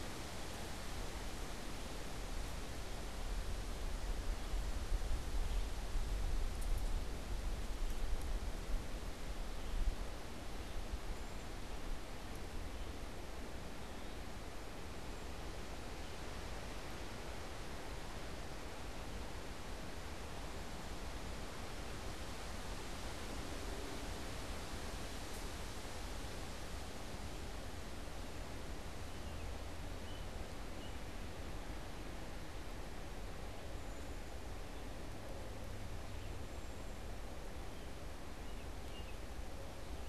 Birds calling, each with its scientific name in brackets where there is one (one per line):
unidentified bird
American Robin (Turdus migratorius)